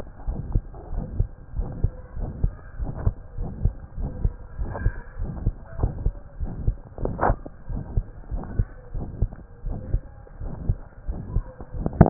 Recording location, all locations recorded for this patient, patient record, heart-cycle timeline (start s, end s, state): tricuspid valve (TV)
aortic valve (AV)+pulmonary valve (PV)+tricuspid valve (TV)+mitral valve (MV)
#Age: Child
#Sex: Male
#Height: 111.0 cm
#Weight: 19.4 kg
#Pregnancy status: False
#Murmur: Present
#Murmur locations: aortic valve (AV)+mitral valve (MV)+pulmonary valve (PV)+tricuspid valve (TV)
#Most audible location: aortic valve (AV)
#Systolic murmur timing: Holosystolic
#Systolic murmur shape: Plateau
#Systolic murmur grading: III/VI or higher
#Systolic murmur pitch: High
#Systolic murmur quality: Harsh
#Diastolic murmur timing: nan
#Diastolic murmur shape: nan
#Diastolic murmur grading: nan
#Diastolic murmur pitch: nan
#Diastolic murmur quality: nan
#Outcome: Abnormal
#Campaign: 2015 screening campaign
0.00	0.25	unannotated
0.25	0.38	S1
0.38	0.52	systole
0.52	0.64	S2
0.64	0.88	diastole
0.88	1.04	S1
1.04	1.14	systole
1.14	1.30	S2
1.30	1.53	diastole
1.53	1.70	S1
1.70	1.80	systole
1.80	1.92	S2
1.92	2.13	diastole
2.13	2.30	S1
2.30	2.40	systole
2.40	2.54	S2
2.54	2.76	diastole
2.76	2.92	S1
2.92	3.02	systole
3.02	3.14	S2
3.14	3.34	diastole
3.34	3.50	S1
3.50	3.60	systole
3.60	3.74	S2
3.74	3.95	diastole
3.95	4.10	S1
4.10	4.20	systole
4.20	4.32	S2
4.32	4.55	diastole
4.55	4.69	S1
4.69	4.80	systole
4.80	4.94	S2
4.94	5.16	diastole
5.16	5.28	S1
5.28	5.40	systole
5.40	5.56	S2
5.56	5.75	diastole
5.75	5.91	S1
5.91	6.00	systole
6.00	6.14	S2
6.14	6.36	diastole
6.36	6.50	S1
6.50	6.62	systole
6.62	6.76	S2
6.76	6.97	diastole
6.97	7.13	S1
7.13	7.22	systole
7.22	7.38	S2
7.38	7.65	diastole
7.65	7.82	S1
7.82	7.92	systole
7.92	8.06	S2
8.06	8.28	diastole
8.28	8.42	S1
8.42	8.56	systole
8.56	8.68	S2
8.68	8.87	diastole
8.87	9.08	S1
9.08	9.18	systole
9.18	9.32	S2
9.32	9.60	diastole
9.60	9.80	S1
9.80	9.90	systole
9.90	10.04	S2
10.04	10.38	diastole
10.38	10.52	S1
10.52	10.64	systole
10.64	10.78	S2
10.78	11.03	diastole
11.03	11.17	S1
11.17	11.31	systole
11.31	11.46	S2
11.46	11.71	diastole
11.71	11.86	S1
11.86	12.10	unannotated